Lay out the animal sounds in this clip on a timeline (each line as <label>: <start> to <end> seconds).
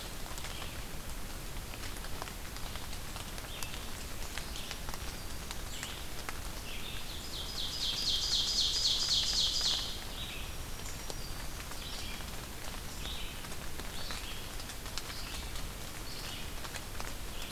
Red-eyed Vireo (Vireo olivaceus): 0.0 to 17.5 seconds
Ovenbird (Seiurus aurocapilla): 6.9 to 10.0 seconds
Black-throated Green Warbler (Setophaga virens): 10.4 to 11.6 seconds